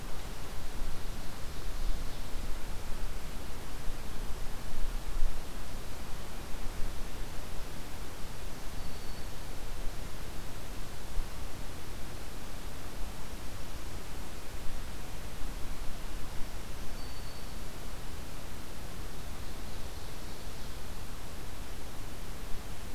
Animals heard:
Ovenbird (Seiurus aurocapilla), Black-capped Chickadee (Poecile atricapillus)

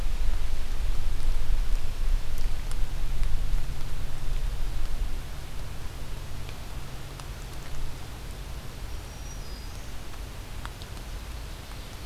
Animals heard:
Black-throated Green Warbler (Setophaga virens)

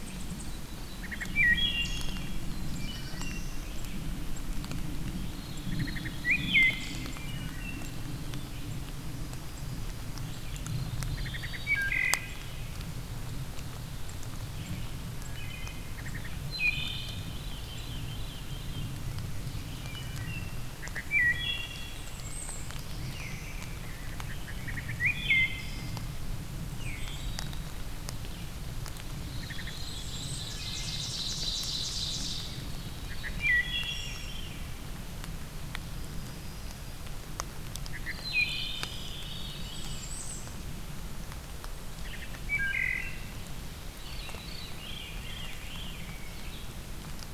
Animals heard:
Rose-breasted Grosbeak (Pheucticus ludovicianus), Veery (Catharus fuscescens), Ovenbird (Seiurus aurocapilla), Bay-breasted Warbler (Setophaga castanea), unknown mammal, Red-eyed Vireo (Vireo olivaceus), Wood Thrush (Hylocichla mustelina), Yellow-rumped Warbler (Setophaga coronata), Black-throated Blue Warbler (Setophaga caerulescens)

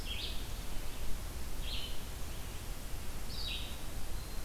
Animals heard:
Red-eyed Vireo (Vireo olivaceus)

